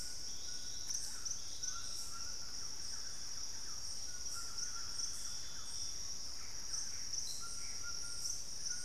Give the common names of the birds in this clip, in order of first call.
White-throated Toucan, Thrush-like Wren, Gray Antbird